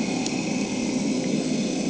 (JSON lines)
{"label": "anthrophony, boat engine", "recorder": "HydroMoth"}